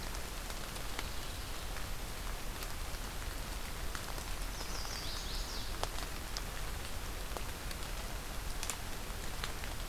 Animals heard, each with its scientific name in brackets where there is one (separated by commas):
Chestnut-sided Warbler (Setophaga pensylvanica)